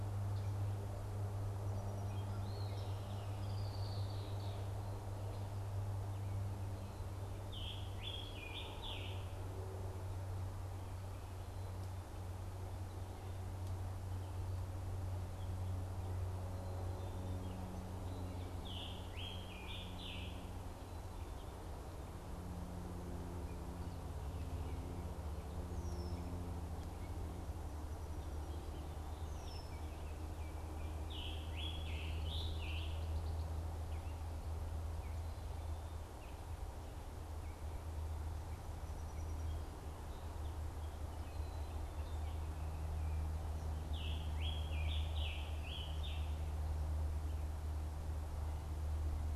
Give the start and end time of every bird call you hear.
1.4s-3.5s: Song Sparrow (Melospiza melodia)
2.3s-3.1s: Eastern Wood-Pewee (Contopus virens)
2.7s-4.8s: Red-winged Blackbird (Agelaius phoeniceus)
7.2s-9.4s: Scarlet Tanager (Piranga olivacea)
18.5s-20.5s: Scarlet Tanager (Piranga olivacea)
25.7s-26.4s: Red-winged Blackbird (Agelaius phoeniceus)
29.3s-30.9s: Baltimore Oriole (Icterus galbula)
31.0s-33.1s: Scarlet Tanager (Piranga olivacea)
43.8s-46.4s: Scarlet Tanager (Piranga olivacea)

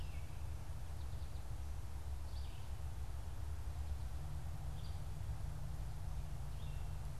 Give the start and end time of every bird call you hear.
0.0s-7.2s: Red-eyed Vireo (Vireo olivaceus)

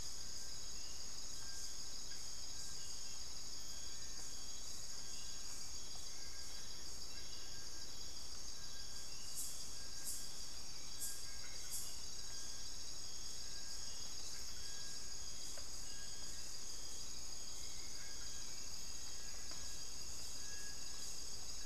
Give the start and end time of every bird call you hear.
0.0s-21.7s: Little Tinamou (Crypturellus soui)
10.2s-21.7s: Hauxwell's Thrush (Turdus hauxwelli)

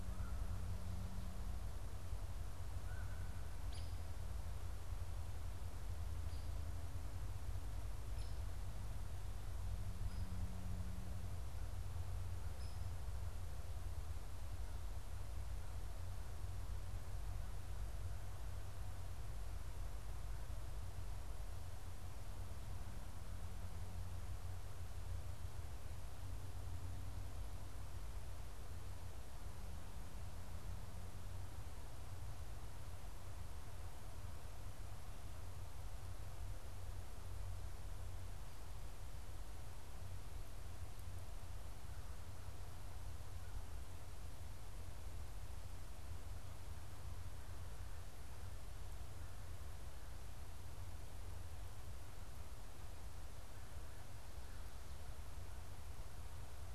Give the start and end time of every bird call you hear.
0.0s-3.5s: Common Raven (Corvus corax)
3.6s-4.0s: Hairy Woodpecker (Dryobates villosus)
8.0s-8.4s: Hairy Woodpecker (Dryobates villosus)
12.5s-12.9s: Hairy Woodpecker (Dryobates villosus)

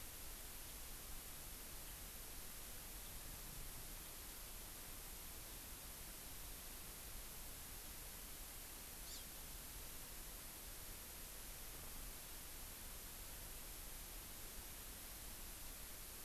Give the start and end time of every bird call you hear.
9.1s-9.3s: Hawaii Amakihi (Chlorodrepanis virens)

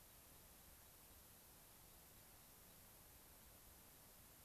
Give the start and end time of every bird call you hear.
0.0s-2.8s: American Pipit (Anthus rubescens)

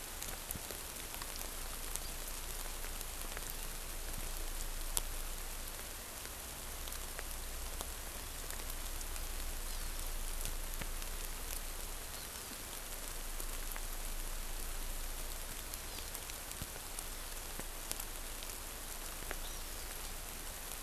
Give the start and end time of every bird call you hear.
9.6s-9.9s: Hawaii Amakihi (Chlorodrepanis virens)
12.1s-12.5s: Hawaii Amakihi (Chlorodrepanis virens)
15.9s-16.1s: Hawaii Amakihi (Chlorodrepanis virens)
19.4s-19.9s: Hawaiian Hawk (Buteo solitarius)

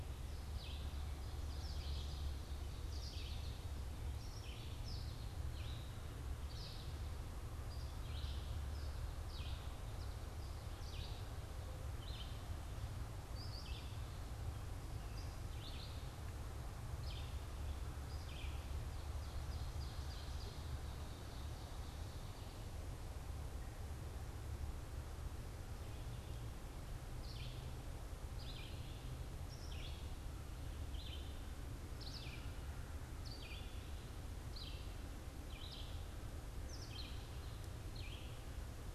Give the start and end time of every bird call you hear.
0.0s-8.5s: Red-eyed Vireo (Vireo olivaceus)
1.4s-3.6s: Ovenbird (Seiurus aurocapilla)
1.4s-7.1s: American Goldfinch (Spinus tristis)
9.1s-18.5s: Red-eyed Vireo (Vireo olivaceus)
18.8s-22.7s: Ovenbird (Seiurus aurocapilla)
27.0s-38.9s: Red-eyed Vireo (Vireo olivaceus)

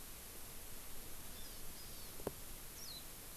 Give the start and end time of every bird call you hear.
1.4s-2.2s: Hawaii Amakihi (Chlorodrepanis virens)
2.7s-3.0s: Warbling White-eye (Zosterops japonicus)

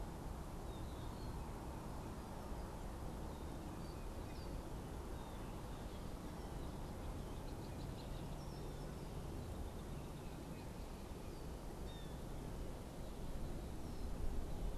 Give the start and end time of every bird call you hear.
3.5s-4.8s: Red-winged Blackbird (Agelaius phoeniceus)
5.0s-5.7s: Blue Jay (Cyanocitta cristata)
7.1s-8.8s: Red-winged Blackbird (Agelaius phoeniceus)
11.6s-12.3s: Blue Jay (Cyanocitta cristata)

